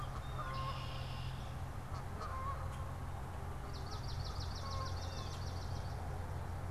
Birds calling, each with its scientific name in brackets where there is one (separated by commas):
Swamp Sparrow (Melospiza georgiana), Canada Goose (Branta canadensis), Red-winged Blackbird (Agelaius phoeniceus), Blue Jay (Cyanocitta cristata)